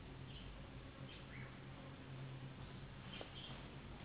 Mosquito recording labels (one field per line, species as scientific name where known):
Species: Anopheles gambiae s.s.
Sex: female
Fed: unfed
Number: one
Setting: insect culture